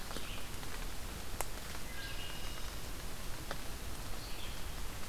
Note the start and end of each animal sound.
0.0s-5.1s: Red-eyed Vireo (Vireo olivaceus)
1.8s-2.7s: Wood Thrush (Hylocichla mustelina)

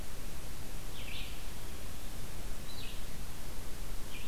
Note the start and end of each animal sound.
0.0s-4.3s: Red-eyed Vireo (Vireo olivaceus)

